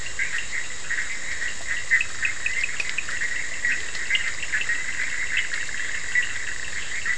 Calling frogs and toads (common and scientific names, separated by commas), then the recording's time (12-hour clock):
Bischoff's tree frog (Boana bischoffi), Cochran's lime tree frog (Sphaenorhynchus surdus)
1:15am